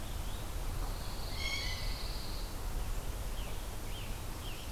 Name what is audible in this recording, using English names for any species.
Pine Warbler, Blue Jay, Scarlet Tanager, Black-throated Blue Warbler